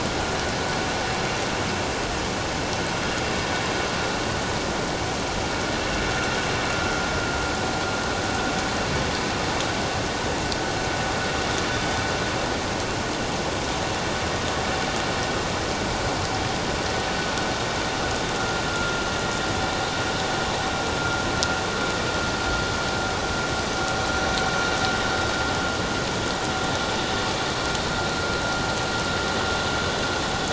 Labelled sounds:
18.4	19.0	vessel noise, 1.3 to 1.5 kHz

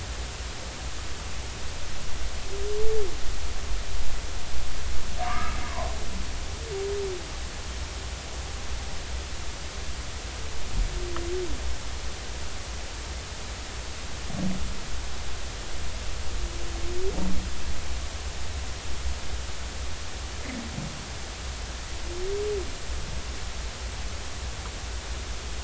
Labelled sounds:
5.2	5.6	humpback whale, 0.93 to 1.3 kHz

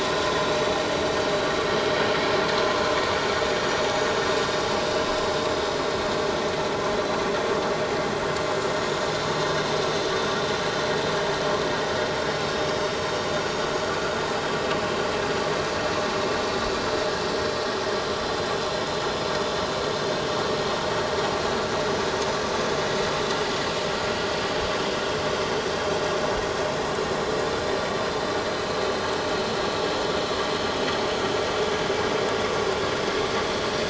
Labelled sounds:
26.8	27.1	vessel noise, 4.1 to 4.2 kHz

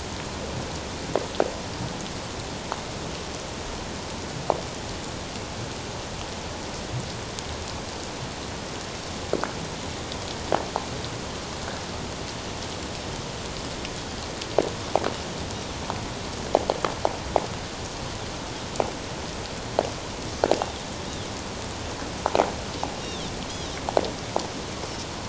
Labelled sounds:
23.0	23.3	Pacific white-sided dolphin, 3.0 to 3.8 kHz

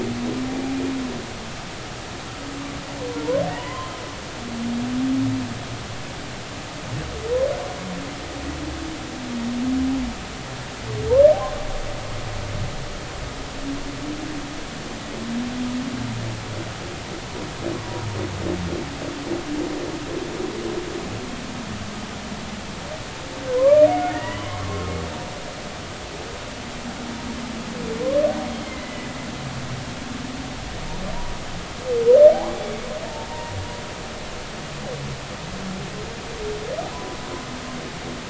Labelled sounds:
3.5	3.9	humpback whale, 0.83 to 1.1 kHz
17.8	18.0	humpback whale, 0.93 to 1.2 kHz
23.5	24.9	humpback whale, 0.93 to 2.2 kHz
28.6	29.1	humpback whale, 2.0 to 2.2 kHz
32.3	32.8	humpback whale, 0.80 to 3.5 kHz
33.3	33.6	humpback whale, 0.90 to 0.99 kHz
36.9	37.2	humpback whale, 0.96 to 1.1 kHz

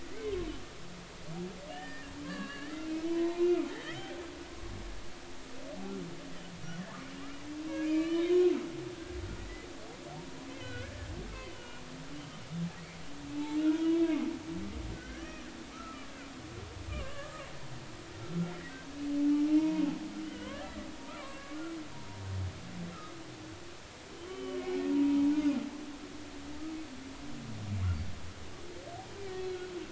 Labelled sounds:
0.0	0.3	humpback whale, 1.8 to 2.3 kHz
1.7	4.2	humpback whale, 0.83 to 4.6 kHz
7.6	8.4	humpback whale, 1.7 to 3.2 kHz
10.5	11.8	humpback whale, 1.3 to 3.2 kHz
13.3	14.3	humpback whale, 0.80 to 2.4 kHz
14.9	15.4	humpback whale, 1.4 to 2.2 kHz
15.7	17.5	humpback whale, 1.0 to 3.0 kHz
18.1	18.4	humpback whale, 1.3 to 1.4 kHz
19.5	20.6	humpback whale, 0.86 to 3.3 kHz
21.1	21.6	humpback whale, 1.0 to 2.8 kHz
24.2	25.3	humpback whale, 0.90 to 3.1 kHz
29.4	29.7	humpback whale, 3.2 to 3.4 kHz

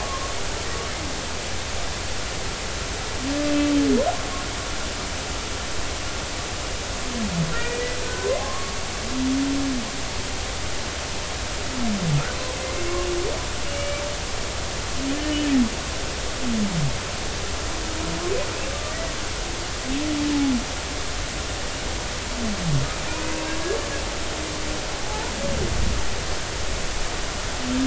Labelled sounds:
0.0	0.3	humpback whale, 1.0 to 1.2 kHz
7.5	8.8	humpback whale, 0.99 to 2.5 kHz
13.7	14.0	humpback whale, 2.2 to 2.9 kHz
18.9	19.1	humpback whale, 1.8 to 2.0 kHz
25.0	25.3	humpback whale, 0.80 to 1.0 kHz

